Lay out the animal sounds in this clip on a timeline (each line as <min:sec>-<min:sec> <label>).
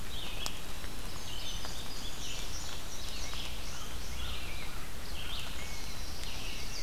0:00.0-0:06.8 Red-eyed Vireo (Vireo olivaceus)
0:00.3-0:01.2 Eastern Wood-Pewee (Contopus virens)
0:01.0-0:04.3 Indigo Bunting (Passerina cyanea)
0:03.0-0:06.8 Rose-breasted Grosbeak (Pheucticus ludovicianus)
0:05.5-0:06.6 Black-capped Chickadee (Poecile atricapillus)